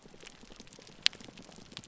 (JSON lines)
{"label": "biophony", "recorder": "SoundTrap 300"}